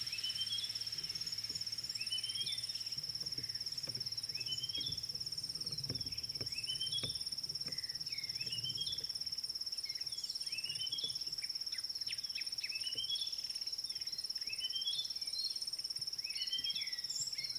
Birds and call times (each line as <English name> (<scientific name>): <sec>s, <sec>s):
Red-cheeked Cordonbleu (Uraeginthus bengalus): 1.4s
Red-backed Scrub-Robin (Cercotrichas leucophrys): 2.2s, 4.6s, 8.6s, 12.9s, 16.5s